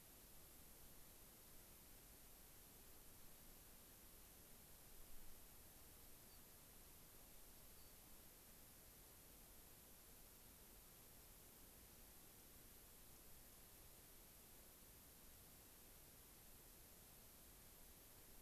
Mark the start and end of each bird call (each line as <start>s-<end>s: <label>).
6.2s-6.4s: unidentified bird
7.7s-8.0s: unidentified bird